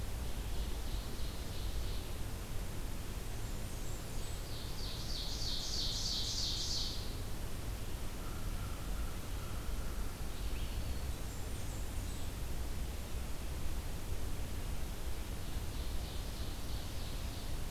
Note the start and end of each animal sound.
[0.00, 2.31] Ovenbird (Seiurus aurocapilla)
[3.21, 4.49] Blackburnian Warbler (Setophaga fusca)
[4.36, 7.15] Ovenbird (Seiurus aurocapilla)
[8.10, 10.43] American Crow (Corvus brachyrhynchos)
[10.08, 11.38] Black-throated Green Warbler (Setophaga virens)
[11.07, 12.45] Blackburnian Warbler (Setophaga fusca)
[15.03, 17.70] Ovenbird (Seiurus aurocapilla)

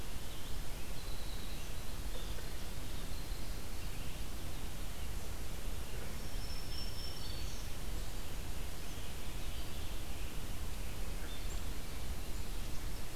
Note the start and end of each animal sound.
[0.00, 5.24] Winter Wren (Troglodytes hiemalis)
[5.89, 8.10] Black-throated Green Warbler (Setophaga virens)
[6.59, 10.78] Rose-breasted Grosbeak (Pheucticus ludovicianus)

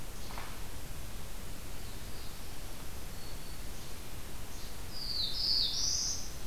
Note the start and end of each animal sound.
[0.00, 0.43] Least Flycatcher (Empidonax minimus)
[2.86, 3.73] Black-throated Green Warbler (Setophaga virens)
[3.68, 4.73] Least Flycatcher (Empidonax minimus)
[4.77, 6.46] Black-throated Blue Warbler (Setophaga caerulescens)

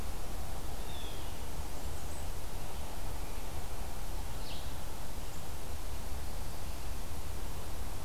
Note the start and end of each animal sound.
[0.78, 1.36] Blue Jay (Cyanocitta cristata)
[4.15, 4.71] Red-eyed Vireo (Vireo olivaceus)

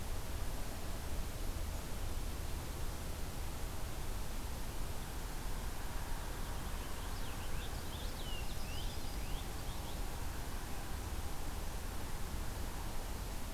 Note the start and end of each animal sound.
[6.54, 10.09] Purple Finch (Haemorhous purpureus)
[8.18, 9.20] Yellow-rumped Warbler (Setophaga coronata)

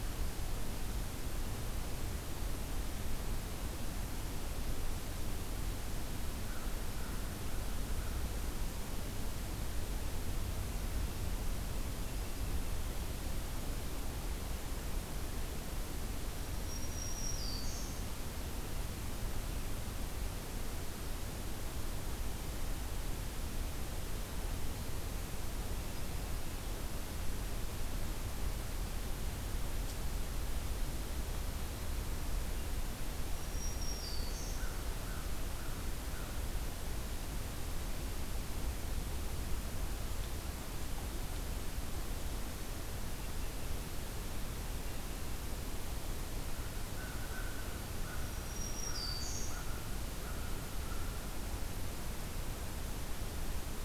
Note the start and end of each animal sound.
[6.23, 8.16] American Crow (Corvus brachyrhynchos)
[16.60, 18.27] Black-throated Green Warbler (Setophaga virens)
[33.22, 34.78] Black-throated Green Warbler (Setophaga virens)
[34.41, 36.35] American Crow (Corvus brachyrhynchos)
[46.43, 51.38] American Crow (Corvus brachyrhynchos)
[48.04, 49.90] Black-throated Green Warbler (Setophaga virens)

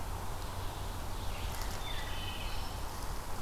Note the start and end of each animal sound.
[1.05, 3.42] Red-eyed Vireo (Vireo olivaceus)
[1.61, 2.87] Wood Thrush (Hylocichla mustelina)

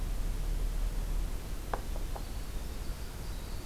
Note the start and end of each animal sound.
[1.88, 3.66] Winter Wren (Troglodytes hiemalis)

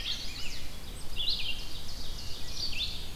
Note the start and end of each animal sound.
[0.00, 0.77] Rose-breasted Grosbeak (Pheucticus ludovicianus)
[0.00, 0.82] Chestnut-sided Warbler (Setophaga pensylvanica)
[0.00, 3.15] Red-eyed Vireo (Vireo olivaceus)
[1.16, 3.15] Ovenbird (Seiurus aurocapilla)

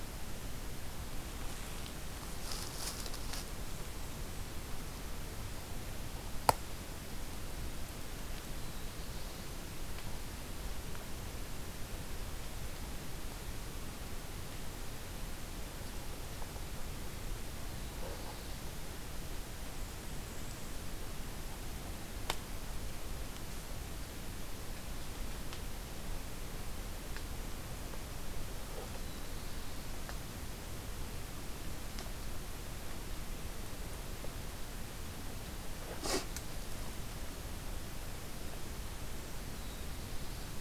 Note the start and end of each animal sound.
[8.32, 9.65] Black-throated Blue Warbler (Setophaga caerulescens)
[17.63, 18.73] Black-throated Blue Warbler (Setophaga caerulescens)
[28.81, 29.83] Black-throated Blue Warbler (Setophaga caerulescens)
[39.36, 40.61] Black-throated Blue Warbler (Setophaga caerulescens)

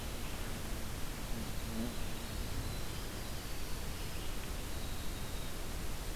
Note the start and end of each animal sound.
[1.33, 5.64] Winter Wren (Troglodytes hiemalis)

